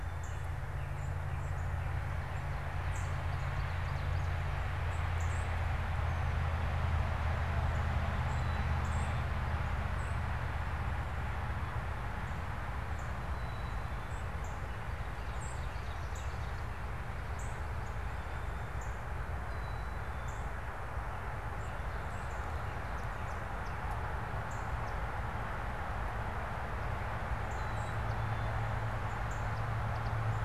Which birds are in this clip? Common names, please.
Northern Cardinal, Black-capped Chickadee, Ovenbird, Swamp Sparrow